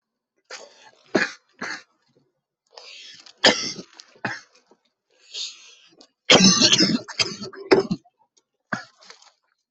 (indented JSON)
{
  "expert_labels": [
    {
      "quality": "poor",
      "cough_type": "unknown",
      "dyspnea": false,
      "wheezing": false,
      "stridor": false,
      "choking": false,
      "congestion": false,
      "nothing": true,
      "diagnosis": "lower respiratory tract infection",
      "severity": "mild"
    }
  ],
  "age": 22,
  "gender": "male",
  "respiratory_condition": false,
  "fever_muscle_pain": true,
  "status": "symptomatic"
}